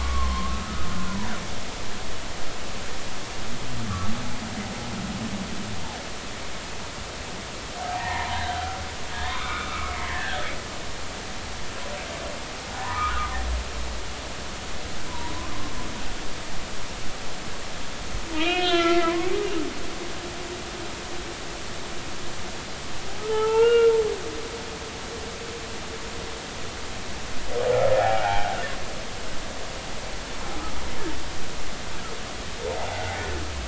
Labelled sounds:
0.0	0.9	humpback whale, 0.99 to 1.4 kHz
7.9	10.4	humpback whale, 0.80 to 3.8 kHz
12.7	13.2	humpback whale, 0.80 to 1.5 kHz
15.1	15.5	humpback whale, 0.90 to 1.1 kHz
18.3	19.3	humpback whale, 0.96 to 4.4 kHz
23.2	23.9	humpback whale, 0.80 to 3.2 kHz
28.0	28.5	humpback whale, 0.80 to 1.6 kHz
32.7	33.0	humpback whale, 0.80 to 0.96 kHz

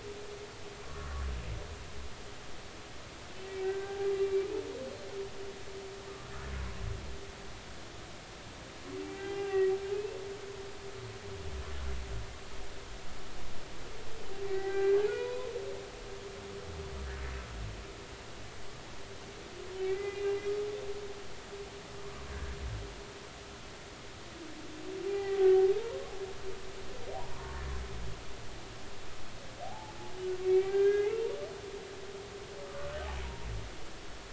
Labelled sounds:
0.8	1.2	humpback whale, 1.0 to 1.5 kHz
3.6	4.1	humpback whale, 0.80 to 1.7 kHz
9.0	9.7	humpback whale, 0.80 to 2.8 kHz
14.4	15.5	humpback whale, 0.80 to 2.6 kHz
19.8	20.4	humpback whale, 1.9 to 2.9 kHz
25.1	25.7	humpback whale, 0.80 to 2.0 kHz
27.4	27.6	humpback whale, 0.90 to 1.2 kHz
29.6	29.9	humpback whale, 0.80 to 0.93 kHz
30.4	31.2	humpback whale, 1.5 to 2.4 kHz
32.7	32.9	humpback whale, 1.1 to 1.3 kHz

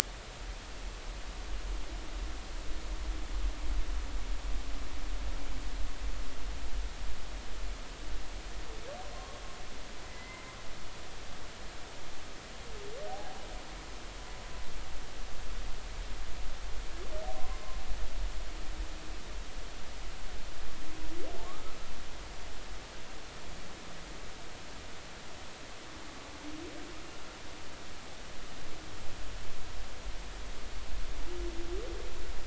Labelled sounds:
10.0	10.6	humpback whale, 2.0 to 2.1 kHz
13.1	13.4	humpback whale, 0.80 to 0.90 kHz
17.3	17.6	humpback whale, 0.96 to 1.1 kHz
21.4	21.7	humpback whale, 1.0 to 1.4 kHz

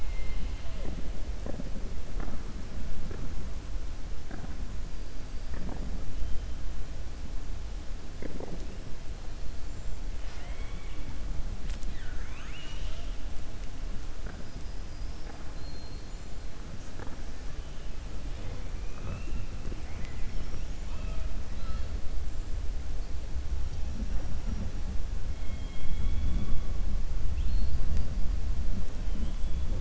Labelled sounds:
0.0	0.8	killer whale, 2.1 to 4.2 kHz
10.2	11.1	killer whale, 0.71 to 5.8 kHz
15.5	16.1	killer whale, 4.1 to 4.7 kHz

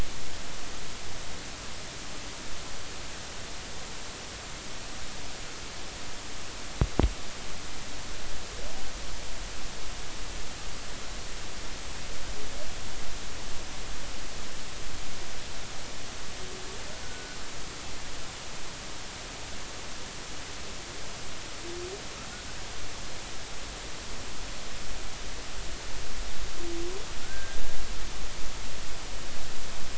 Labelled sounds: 17.0	17.4	humpback whale, 1.4 to 1.5 kHz
27.2	27.6	humpback whale, 1.4 to 1.6 kHz

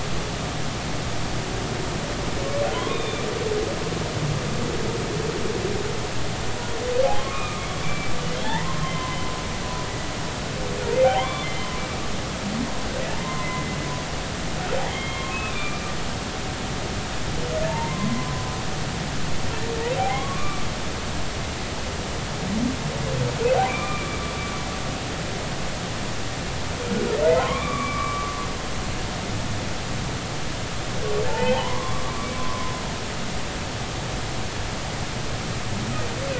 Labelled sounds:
2.7	3.3	humpback whale, 0.96 to 3.7 kHz
7.2	9.4	humpback whale, 0.80 to 3.6 kHz
11.2	11.7	humpback whale, 0.90 to 4.4 kHz
13.2	13.8	humpback whale, 0.90 to 2.1 kHz
14.8	15.9	humpback whale, 1.0 to 3.3 kHz
17.7	18.4	humpback whale, 0.86 to 2.1 kHz
20.0	20.7	humpback whale, 0.80 to 3.4 kHz
23.7	24.1	humpback whale, 1.1 to 2.5 kHz
27.3	28.3	humpback whale, 0.93 to 2.4 kHz
31.3	32.7	humpback whale, 0.80 to 3.3 kHz

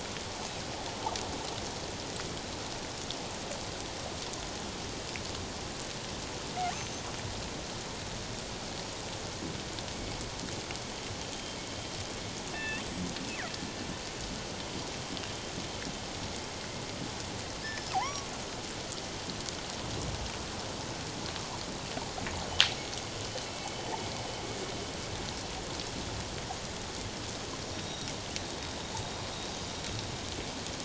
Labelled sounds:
6.7	7.0	killer whale, northern resident, G clan, 6.1 to 6.3 kHz
12.5	13.3	killer whale, northern resident, G clan, 1.7 to 8.0 kHz
17.6	18.3	killer whale, northern resident, G clan, 0.78 to 5.4 kHz
23.5	23.8	killer whale, northern resident, G clan, 2.1 to 2.7 kHz
27.7	28.1	killer whale, northern resident, G clan, 3.6 to 5.8 kHz

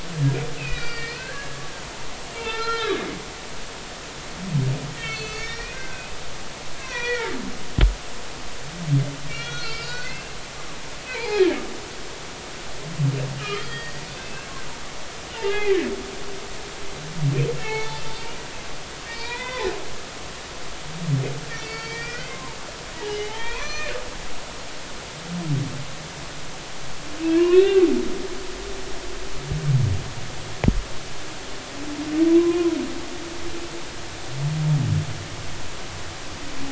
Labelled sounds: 0.6	1.6	humpback whale, 1.3 to 5.2 kHz
2.3	3.1	humpback whale, 0.86 to 4.2 kHz
5.0	6.1	humpback whale, 1.5 to 6.3 kHz
6.8	7.4	humpback whale, 0.93 to 3.5 kHz
9.3	10.3	humpback whale, 1.3 to 4.9 kHz
11.0	11.6	humpback whale, 0.80 to 4.4 kHz
13.4	14.5	humpback whale, 1.2 to 4.8 kHz
15.4	15.9	humpback whale, 1.7 to 2.6 kHz
17.6	18.0	humpback whale, 0.80 to 4.5 kHz
19.1	19.7	humpback whale, 0.80 to 4.8 kHz
21.5	23.9	humpback whale, 0.80 to 6.2 kHz
27.4	27.8	humpback whale, 0.96 to 4.0 kHz
32.3	32.8	humpback whale, 0.96 to 1.1 kHz

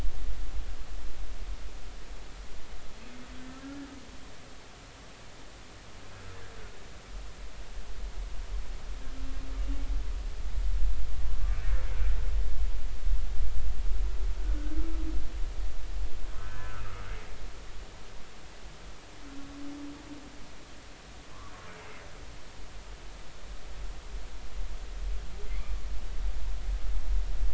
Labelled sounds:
16.4	16.7	humpback whale, 1.4 to 1.8 kHz
25.5	25.8	humpback whale, 2.0 to 2.5 kHz

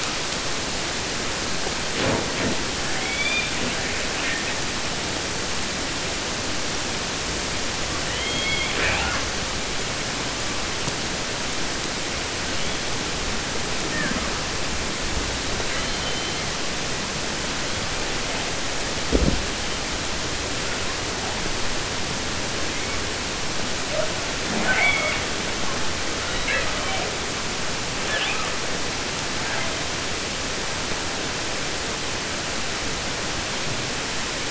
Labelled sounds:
2.7	3.8	killer whale, 0.29 to 5.9 kHz
4.1	4.6	killer whale, 1.4 to 3.7 kHz
7.8	9.3	killer whale, southern resident, 0.21 to 5.8 kHz
13.8	14.4	killer whale, 0.93 to 2.3 kHz
15.3	16.5	killer whale, 0.25 to 4.8 kHz
22.6	23.0	killer whale, 1.7 to 2.5 kHz
24.4	25.3	killer whale, southern resident, J pod, call S44, 0.09 to 5.4 kHz
26.0	27.2	killer whale, southern resident, 0.20 to 4.3 kHz
28.0	28.6	killer whale, 0.50 to 4.2 kHz
29.3	30.0	killer whale, 0.16 to 3.6 kHz

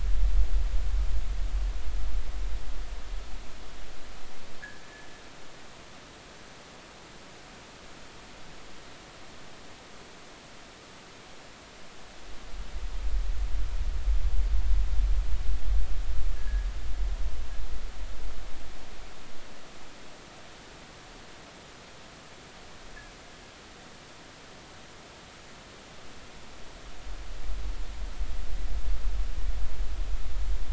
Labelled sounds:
16.4	16.7	fishing gear, 1.6 to 1.8 kHz

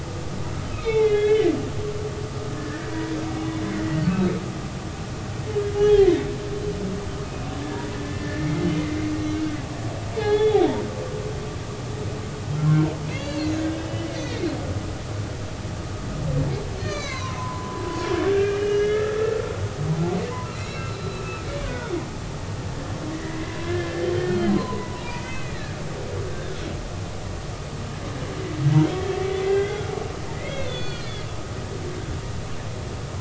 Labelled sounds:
0.7	1.4	humpback whale, 1.2 to 4.2 kHz
2.6	3.2	humpback whale, 0.93 to 2.0 kHz
4.0	4.3	humpback whale, 2.5 to 2.7 kHz
5.8	6.3	humpback whale, 1.9 to 3.4 kHz
8.0	8.5	humpback whale, 1.7 to 2.1 kHz
10.2	10.6	humpback whale, 1.6 to 4.4 kHz
12.5	14.5	humpback whale, 1.3 to 4.7 kHz
16.8	17.8	humpback whale, 0.93 to 6.6 kHz
18.3	19.5	humpback whale, 1.2 to 3.0 kHz
20.3	21.9	humpback whale, 0.86 to 4.2 kHz
23.2	26.7	humpback whale, 0.90 to 4.4 kHz
29.4	29.9	humpback whale, 1.3 to 3.5 kHz
30.3	31.1	humpback whale, 1.3 to 4.5 kHz

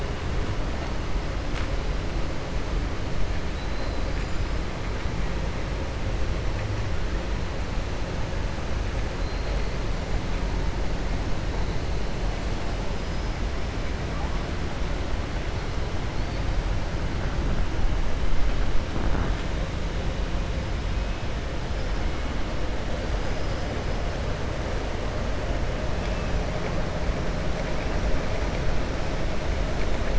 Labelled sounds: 3.5	4.1	killer whale, 3.0 to 5.0 kHz
9.2	9.7	killer whale, 3.7 to 4.4 kHz

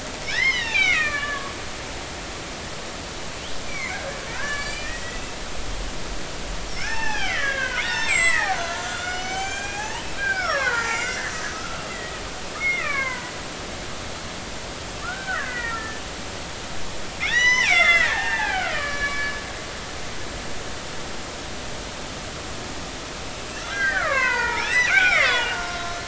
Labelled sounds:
0.2	1.5	killer whale, Bigg's (transient), 1.1 to 6.2 kHz
3.6	5.2	killer whale, Bigg's (transient), 0.90 to 7.7 kHz
6.7	12.2	killer whale, Bigg's (transient), 0.80 to 8.0 kHz
12.6	13.3	killer whale, Bigg's (transient), 0.93 to 2.7 kHz
15.0	16.0	killer whale, Bigg's (transient), 1.1 to 2.6 kHz
17.2	19.3	killer whale, Bigg's (transient), 0.80 to 6.1 kHz
23.6	26.0	killer whale, Bigg's (transient), 0.80 to 6.0 kHz

